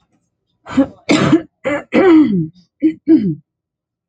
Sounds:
Throat clearing